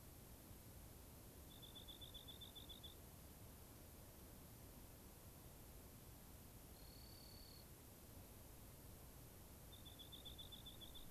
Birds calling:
Rock Wren (Salpinctes obsoletus)

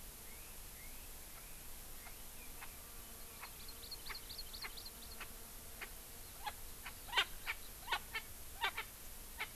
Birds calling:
Erckel's Francolin (Pternistis erckelii), Hawaii Amakihi (Chlorodrepanis virens)

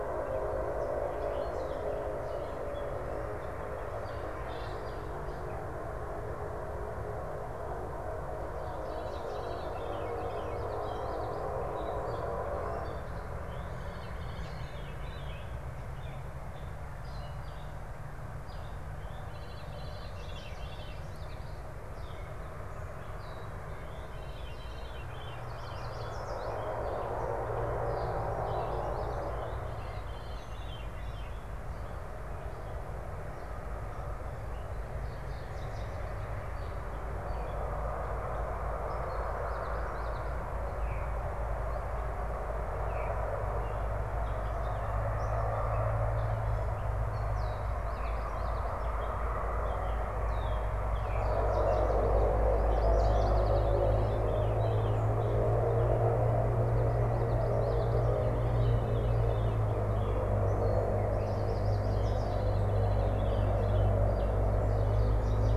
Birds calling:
Common Yellowthroat (Geothlypis trichas), Yellow Warbler (Setophaga petechia), Veery (Catharus fuscescens), Chestnut-sided Warbler (Setophaga pensylvanica), Gray Catbird (Dumetella carolinensis)

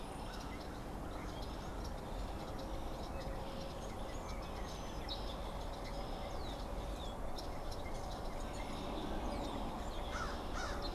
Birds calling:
Red-winged Blackbird (Agelaius phoeniceus), American Crow (Corvus brachyrhynchos)

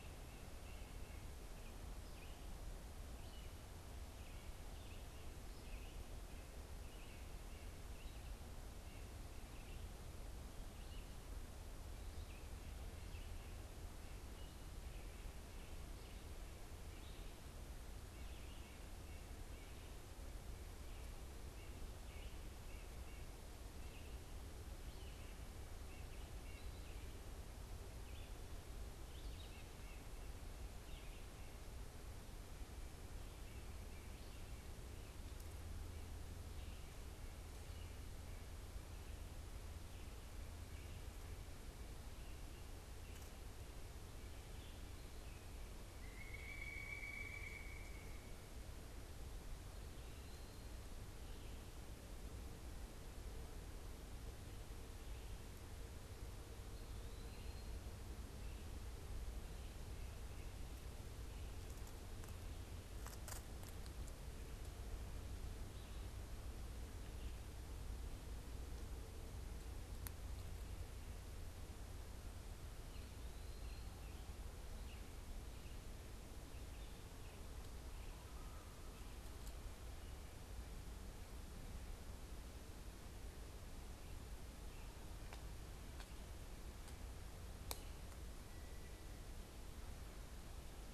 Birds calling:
White-breasted Nuthatch (Sitta carolinensis), Eastern Wood-Pewee (Contopus virens), Pileated Woodpecker (Dryocopus pileatus), Red-eyed Vireo (Vireo olivaceus)

